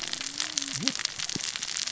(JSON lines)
{"label": "biophony, cascading saw", "recorder": "SoundTrap 600 or HydroMoth"}